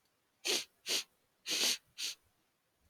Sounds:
Sniff